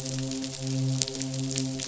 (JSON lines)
{"label": "biophony, midshipman", "recorder": "SoundTrap 500"}